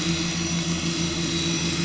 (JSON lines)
{"label": "anthrophony, boat engine", "recorder": "SoundTrap 500"}